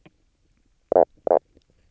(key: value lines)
label: biophony, knock croak
recorder: SoundTrap 300